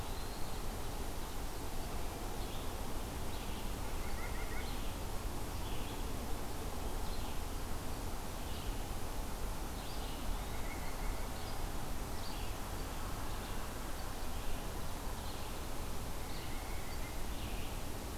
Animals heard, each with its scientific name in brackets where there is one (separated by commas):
Red-eyed Vireo (Vireo olivaceus), Eastern Wood-Pewee (Contopus virens), White-breasted Nuthatch (Sitta carolinensis)